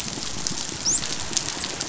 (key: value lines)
label: biophony, dolphin
recorder: SoundTrap 500